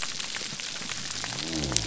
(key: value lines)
label: biophony
recorder: SoundTrap 300